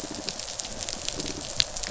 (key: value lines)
label: biophony
recorder: SoundTrap 500